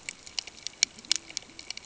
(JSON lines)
{"label": "ambient", "recorder": "HydroMoth"}